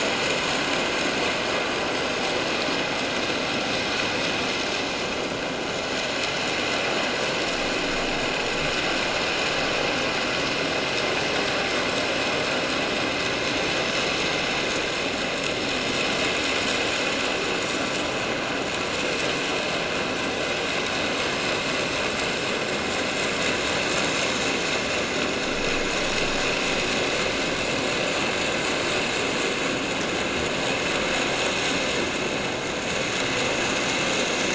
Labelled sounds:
31.5	31.8	vessel noise, 7.5 to 7.7 kHz

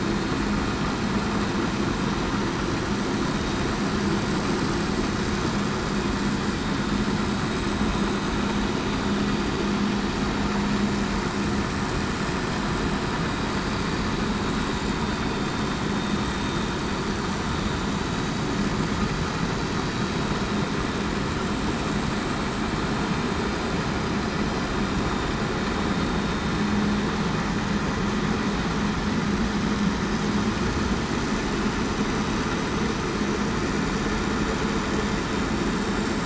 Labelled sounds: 15.0	15.5	vessel noise, 3.6 to 3.7 kHz

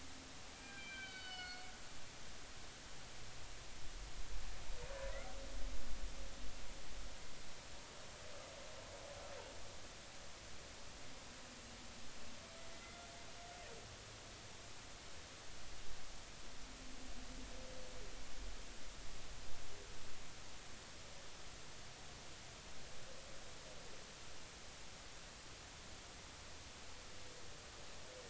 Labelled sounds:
0.5	1.7	humpback whale, 1.4 to 5.2 kHz
12.7	13.1	humpback whale, 1.3 to 2.1 kHz

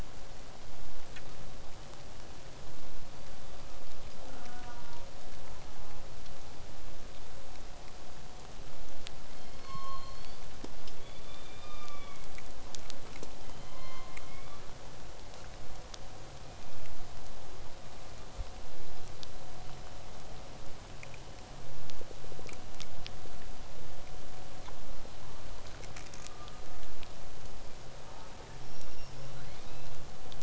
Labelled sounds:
2.8	3.9	killer whale, southern resident, whistle, 3.2 to 5.0 kHz
4.2	5.2	killer whale, southern resident, J pod, call S04, 0.35 to 1.7 kHz
5.4	6.1	killer whale, southern resident, J pod, call S04, 0.25 to 1.5 kHz
9.3	10.5	killer whale, southern resident, 0.85 to 8.0 kHz
11.0	12.3	killer whale, southern resident, call S16, 0.85 to 5.0 kHz
13.4	14.7	killer whale, southern resident, 0.85 to 4.6 kHz
16.5	16.9	killer whale, southern resident, 2.2 to 2.7 kHz
28.6	30.4	killer whale, southern resident, 1.2 to 5.8 kHz

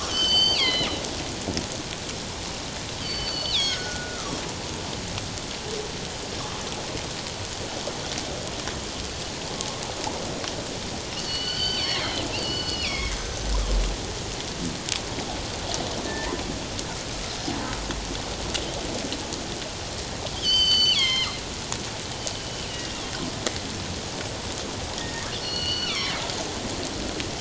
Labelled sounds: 0.1	0.9	killer whale, northern resident, G clan, 1.9 to 7.7 kHz
3.0	4.4	killer whale, northern resident, G clan, 1.1 to 6.7 kHz
11.2	13.5	killer whale, northern resident, G clan, 1.4 to 6.2 kHz
16.1	16.3	killer whale, northern resident, G clan, 1.7 to 2.1 kHz
20.3	21.4	killer whale, northern resident, G clan, 0.88 to 6.3 kHz
22.7	23.0	killer whale, northern resident, G clan, 2.7 to 3.0 kHz
25.0	26.2	killer whale, northern resident, G clan, 1.0 to 6.0 kHz

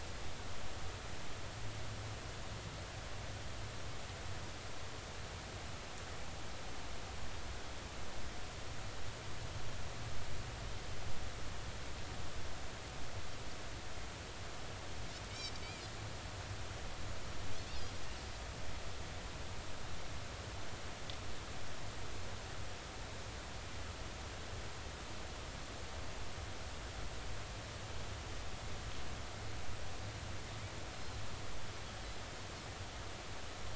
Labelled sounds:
15.3	15.5	Pacific white-sided dolphin, 2.2 to 2.4 kHz

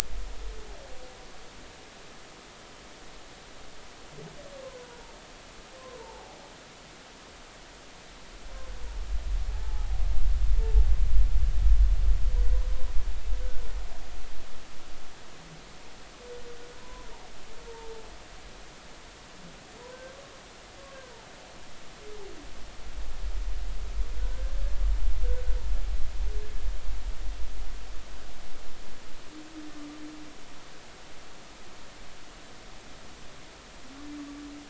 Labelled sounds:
6.0	6.4	humpback whale, 0.80 to 1.0 kHz
9.6	10.0	humpback whale, 0.80 to 0.93 kHz
16.8	17.1	humpback whale, 0.93 to 1.1 kHz
19.9	20.2	humpback whale, 1.5 to 1.6 kHz
24.2	24.5	humpback whale, 1.4 to 1.7 kHz

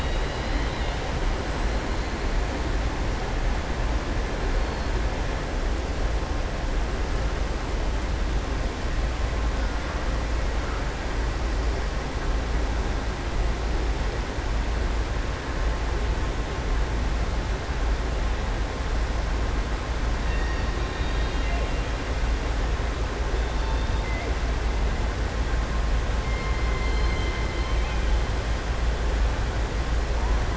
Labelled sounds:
20.2	20.7	killer whale, southern resident, 1.8 to 5.6 kHz

